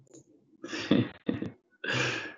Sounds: Laughter